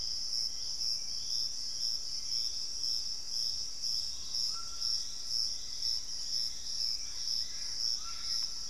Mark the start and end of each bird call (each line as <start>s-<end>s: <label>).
0.0s-8.7s: Hauxwell's Thrush (Turdus hauxwelli)
3.9s-8.7s: Piratic Flycatcher (Legatus leucophaius)
4.0s-8.7s: White-throated Toucan (Ramphastos tucanus)
4.8s-6.9s: Black-faced Antthrush (Formicarius analis)
6.7s-8.7s: Gray Antbird (Cercomacra cinerascens)